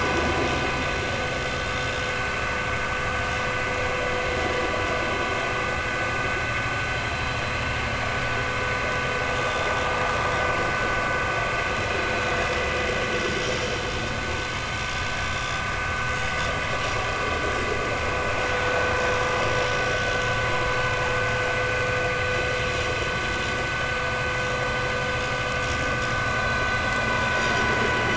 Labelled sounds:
9.4	9.7	vessel noise, 3.4 to 3.6 kHz
27.4	27.6	vessel noise, 4.7 to 5.0 kHz

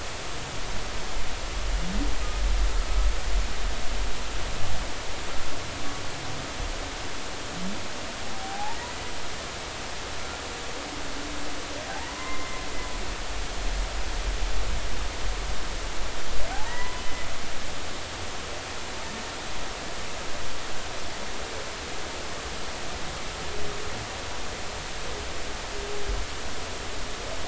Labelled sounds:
8.3	8.8	humpback whale, 0.80 to 0.96 kHz
12.1	12.6	humpback whale, 0.93 to 2.1 kHz
16.5	17.0	humpback whale, 0.80 to 2.0 kHz

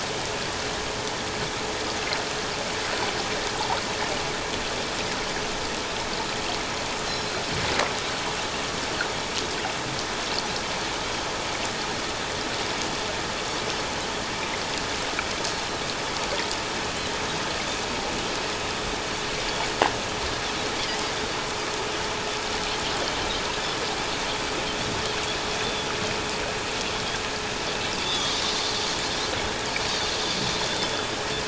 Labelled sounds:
7.1	7.3	Pacific white-sided dolphin, 4.0 to 4.2 kHz
25.6	25.9	Pacific white-sided dolphin, 3.3 to 3.6 kHz
28.0	28.4	Pacific white-sided dolphin, 3.2 to 3.7 kHz
29.8	30.1	Pacific white-sided dolphin, 4.5 to 4.7 kHz
30.7	31.1	Pacific white-sided dolphin, 3.4 to 3.6 kHz

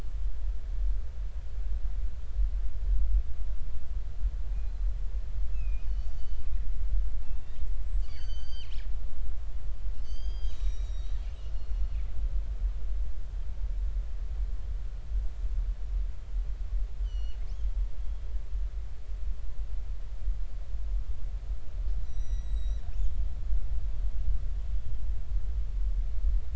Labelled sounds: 5.5	6.5	killer whale, northern resident, 2.4 to 4.6 kHz
7.7	8.8	killer whale, northern resident, 1.4 to 8.0 kHz
10.0	11.9	killer whale, northern resident, 2.3 to 8.0 kHz
17.0	17.4	killer whale, northern resident, 2.7 to 7.4 kHz
22.0	22.9	killer whale, northern resident, 1.8 to 7.9 kHz
24.8	25.0	killer whale, northern resident, 3.1 to 3.5 kHz

